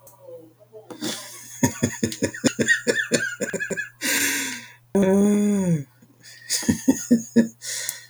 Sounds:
Laughter